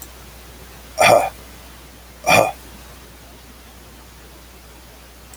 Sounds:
Cough